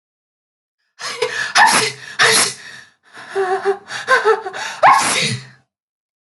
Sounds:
Sneeze